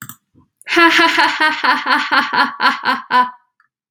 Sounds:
Laughter